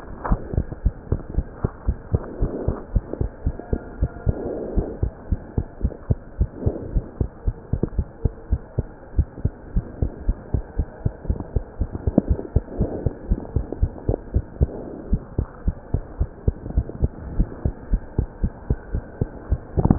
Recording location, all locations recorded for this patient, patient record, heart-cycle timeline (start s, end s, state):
tricuspid valve (TV)
aortic valve (AV)+pulmonary valve (PV)+tricuspid valve (TV)+mitral valve (MV)
#Age: Child
#Sex: Female
#Height: 96.0 cm
#Weight: 13.9 kg
#Pregnancy status: False
#Murmur: Absent
#Murmur locations: nan
#Most audible location: nan
#Systolic murmur timing: nan
#Systolic murmur shape: nan
#Systolic murmur grading: nan
#Systolic murmur pitch: nan
#Systolic murmur quality: nan
#Diastolic murmur timing: nan
#Diastolic murmur shape: nan
#Diastolic murmur grading: nan
#Diastolic murmur pitch: nan
#Diastolic murmur quality: nan
#Outcome: Normal
#Campaign: 2015 screening campaign
0.00	1.72	unannotated
1.72	1.86	diastole
1.86	1.96	S1
1.96	2.10	systole
2.10	2.22	S2
2.22	2.40	diastole
2.40	2.52	S1
2.52	2.66	systole
2.66	2.78	S2
2.78	2.92	diastole
2.92	3.06	S1
3.06	3.18	systole
3.18	3.32	S2
3.32	3.44	diastole
3.44	3.56	S1
3.56	3.72	systole
3.72	3.82	S2
3.82	4.00	diastole
4.00	4.09	S1
4.09	4.26	systole
4.26	4.36	S2
4.36	4.74	diastole
4.74	4.88	S1
4.88	5.00	systole
5.00	5.12	S2
5.12	5.30	diastole
5.30	5.40	S1
5.40	5.54	systole
5.54	5.66	S2
5.66	5.82	diastole
5.82	5.92	S1
5.92	6.06	systole
6.06	6.20	S2
6.20	6.36	diastole
6.36	6.48	S1
6.48	6.62	systole
6.62	6.74	S2
6.74	6.90	diastole
6.90	7.04	S1
7.04	7.16	systole
7.16	7.28	S2
7.28	7.46	diastole
7.46	7.56	S1
7.56	7.72	systole
7.72	7.80	S2
7.80	7.96	diastole
7.96	8.08	S1
8.08	8.24	systole
8.24	8.34	S2
8.34	8.50	diastole
8.50	8.60	S1
8.60	8.78	systole
8.78	8.92	S2
8.92	9.14	diastole
9.14	9.28	S1
9.28	9.44	systole
9.44	9.54	S2
9.54	9.74	diastole
9.74	9.86	S1
9.86	10.00	systole
10.00	10.12	S2
10.12	10.26	diastole
10.26	10.38	S1
10.38	10.50	systole
10.50	10.64	S2
10.64	10.78	diastole
10.78	10.88	S1
10.88	11.02	systole
11.02	11.14	S2
11.14	11.28	diastole
11.28	11.38	S1
11.38	11.52	systole
11.52	11.64	S2
11.64	11.80	diastole
11.80	11.92	S1
11.92	12.06	systole
12.06	12.16	S2
12.16	12.28	diastole
12.28	12.44	S1
12.44	12.52	systole
12.52	12.64	S2
12.64	12.78	diastole
12.78	12.90	S1
12.90	13.04	systole
13.04	13.14	S2
13.14	13.28	diastole
13.28	13.40	S1
13.40	13.52	systole
13.52	13.66	S2
13.66	13.80	diastole
13.80	13.96	S1
13.96	14.08	systole
14.08	14.20	S2
14.20	14.33	diastole
14.33	14.44	S1
14.44	14.58	systole
14.58	14.68	S2
14.68	15.08	diastole
15.08	15.22	S1
15.22	15.34	systole
15.34	15.48	S2
15.48	15.66	diastole
15.66	15.76	S1
15.76	15.90	systole
15.90	16.02	S2
16.02	16.16	diastole
16.16	16.30	S1
16.30	16.44	systole
16.44	16.58	S2
16.58	16.74	diastole
16.74	16.88	S1
16.88	17.00	systole
17.00	17.14	S2
17.14	17.32	diastole
17.32	17.50	S1
17.50	17.64	systole
17.64	17.76	S2
17.76	17.90	diastole
17.90	18.02	S1
18.02	18.14	systole
18.14	18.26	S2
18.26	18.42	diastole
18.42	18.52	S1
18.52	18.66	systole
18.66	18.80	S2
18.80	18.92	diastole
18.92	19.04	S1
19.04	19.20	systole
19.20	19.30	S2
19.30	19.48	diastole
19.48	19.59	S1
19.59	19.98	unannotated